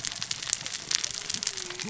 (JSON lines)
{"label": "biophony, cascading saw", "recorder": "SoundTrap 600 or HydroMoth"}